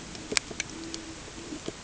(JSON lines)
{"label": "ambient", "recorder": "HydroMoth"}